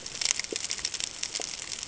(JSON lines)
{"label": "ambient", "recorder": "HydroMoth"}